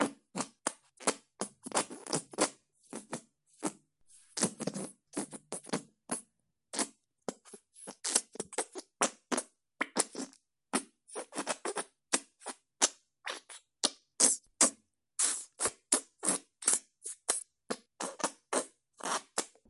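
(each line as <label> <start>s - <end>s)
Constant wet and sludgy sounds of a gel-like substance. 0.0s - 19.7s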